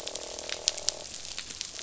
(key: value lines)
label: biophony, croak
recorder: SoundTrap 500